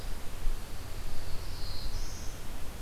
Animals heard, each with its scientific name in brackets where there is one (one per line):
Black-throated Blue Warbler (Setophaga caerulescens)